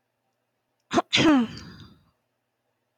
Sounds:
Throat clearing